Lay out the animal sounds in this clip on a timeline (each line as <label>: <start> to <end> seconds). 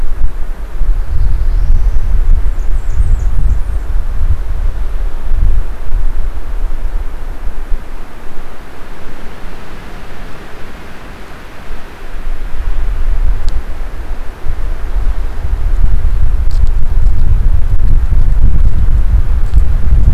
Black-throated Blue Warbler (Setophaga caerulescens): 0.8 to 2.2 seconds
Blackburnian Warbler (Setophaga fusca): 2.2 to 3.9 seconds